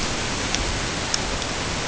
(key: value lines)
label: ambient
recorder: HydroMoth